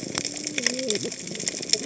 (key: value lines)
label: biophony, cascading saw
recorder: HydroMoth